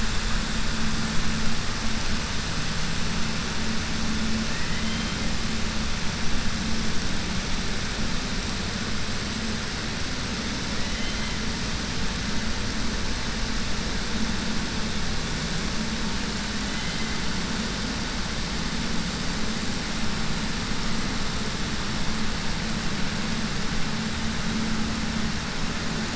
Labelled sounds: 4.5	5.2	killer whale, 1.8 to 3.8 kHz
10.8	11.3	killer whale, 1.9 to 4.1 kHz

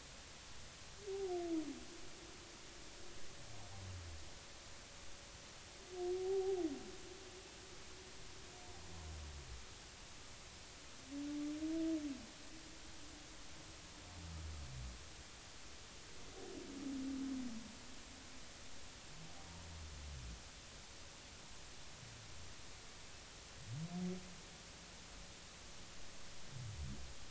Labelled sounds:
6.2	6.6	humpback whale, 0.80 to 0.86 kHz

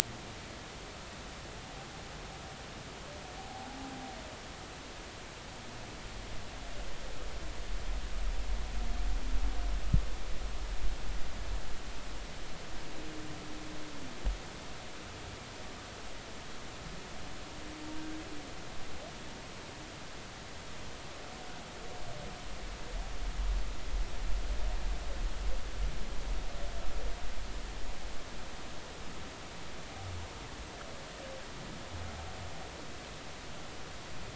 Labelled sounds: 3.4	3.7	humpback whale, 0.80 to 0.90 kHz

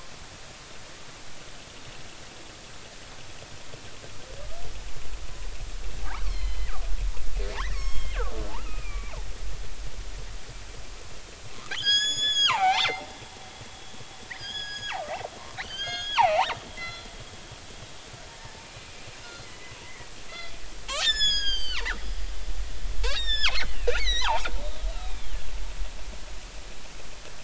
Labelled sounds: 6.3	9.3	killer whale, northern resident, G clan, 0.80 to 7.7 kHz
11.7	13.0	killer whale, northern resident, G clan, 0.80 to 6.9 kHz
14.4	15.0	killer whale, northern resident, G clan, 0.80 to 6.8 kHz
15.6	17.1	killer whale, northern resident, G clan, 0.80 to 6.7 kHz
18.3	20.5	killer whale, northern resident, G clan, 0.86 to 4.9 kHz
20.9	22.0	killer whale, northern resident, G clan, 0.86 to 8.0 kHz
23.0	24.5	killer whale, northern resident, G clan, 0.80 to 7.5 kHz
24.9	25.3	killer whale, northern resident, G clan, 2.3 to 3.9 kHz

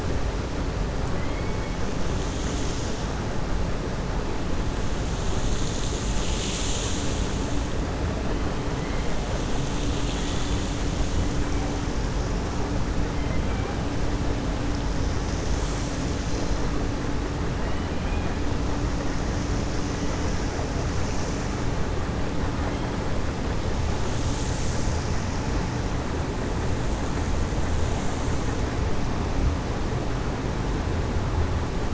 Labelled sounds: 1.1	1.7	killer whale, 1.1 to 2.3 kHz
9.8	10.7	killer whale, 2.1 to 5.0 kHz
13.2	13.7	killer whale, 0.77 to 2.4 kHz

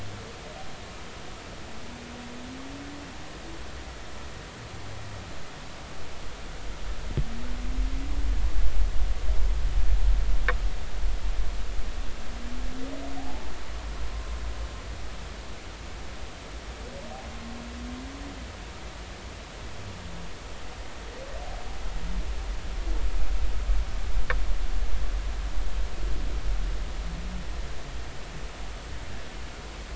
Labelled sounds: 13.2	14.4	humpback whale, 0.80 to 1.1 kHz

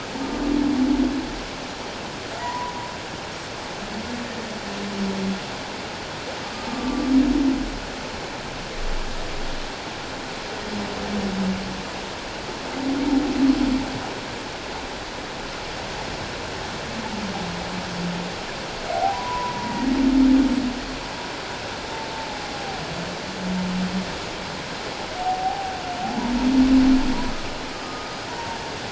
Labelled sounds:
2.4	2.8	humpback whale, 0.91 to 1.0 kHz
6.7	7.1	humpback whale, 1.1 to 1.2 kHz
18.9	20.0	humpback whale, 0.78 to 2.0 kHz
25.2	25.7	humpback whale, 0.78 to 0.84 kHz
27.7	28.6	humpback whale, 0.88 to 5.0 kHz

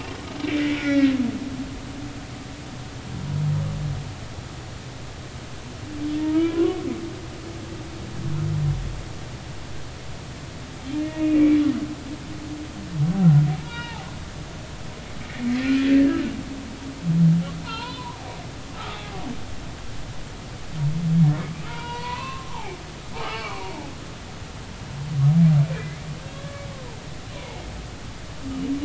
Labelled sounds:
0.7	1.1	humpback whale, 1.3 to 2.4 kHz
6.3	6.8	humpback whale, 0.96 to 2.4 kHz
11.1	11.6	humpback whale, 2.2 to 2.5 kHz
13.2	14.1	humpback whale, 0.80 to 4.8 kHz
14.7	16.3	humpback whale, 1.4 to 2.8 kHz
17.6	18.2	humpback whale, 0.83 to 4.3 kHz
18.9	19.2	humpback whale, 0.80 to 0.86 kHz
21.6	22.8	humpback whale, 0.80 to 4.4 kHz
23.1	23.7	humpback whale, 0.96 to 3.0 kHz
26.3	26.6	humpback whale, 1.1 to 3.4 kHz
27.3	27.6	humpback whale, 0.80 to 1.1 kHz

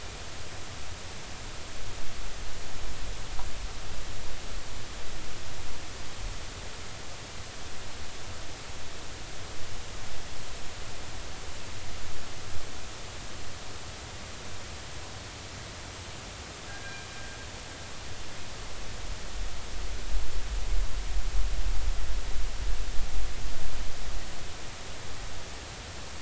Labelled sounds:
16.7	17.1	killer whale, northern resident, G clan, call N24ii, 1.5 to 1.8 kHz

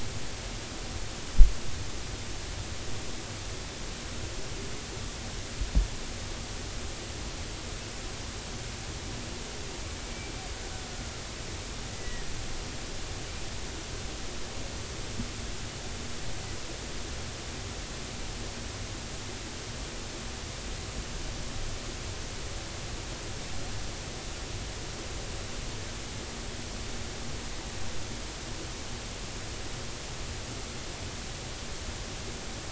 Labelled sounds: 10.1	10.4	killer whale, 2.3 to 2.4 kHz
11.9	12.3	killer whale, 1.7 to 2.0 kHz

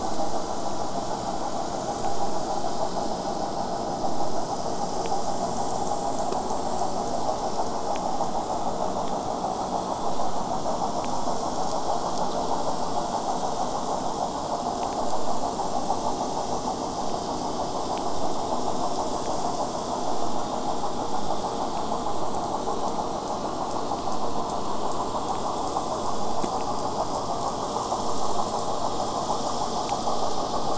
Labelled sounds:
3.8	8.9	killer whale, southern resident, J pod, 5.0 to 8.0 kHz
15.0	20.0	vessel noise, 0 to 8.0 kHz

